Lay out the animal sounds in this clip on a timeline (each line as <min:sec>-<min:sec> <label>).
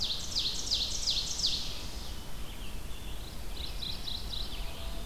0:00.0-0:02.0 Ovenbird (Seiurus aurocapilla)
0:00.0-0:05.1 Red-eyed Vireo (Vireo olivaceus)
0:03.2-0:04.8 Mourning Warbler (Geothlypis philadelphia)